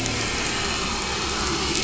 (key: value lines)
label: anthrophony, boat engine
recorder: SoundTrap 500